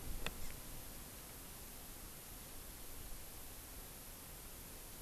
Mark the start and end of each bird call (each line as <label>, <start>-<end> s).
Hawaii Amakihi (Chlorodrepanis virens), 0.3-0.6 s